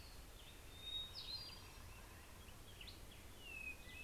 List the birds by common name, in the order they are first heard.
Orange-crowned Warbler, Black-headed Grosbeak, Hermit Thrush